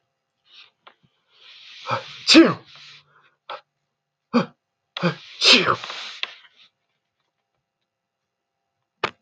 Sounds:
Sneeze